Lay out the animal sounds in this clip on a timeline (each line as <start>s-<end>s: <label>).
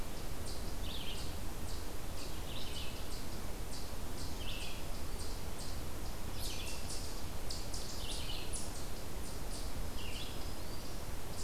0.0s-11.4s: Eastern Chipmunk (Tamias striatus)
0.0s-11.4s: Red-eyed Vireo (Vireo olivaceus)
9.5s-11.2s: Black-throated Green Warbler (Setophaga virens)